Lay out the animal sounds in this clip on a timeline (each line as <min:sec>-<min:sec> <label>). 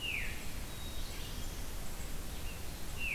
0:00.0-0:03.1 Golden-crowned Kinglet (Regulus satrapa)
0:00.0-0:03.1 Red-eyed Vireo (Vireo olivaceus)
0:00.6-0:01.6 Black-capped Chickadee (Poecile atricapillus)